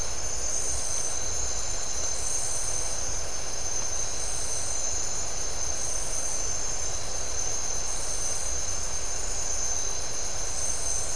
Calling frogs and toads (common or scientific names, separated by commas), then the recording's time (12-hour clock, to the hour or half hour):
none
~3am